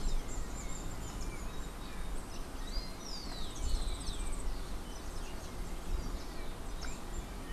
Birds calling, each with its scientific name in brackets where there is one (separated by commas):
Yellow-faced Grassquit (Tiaris olivaceus)